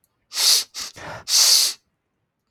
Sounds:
Sniff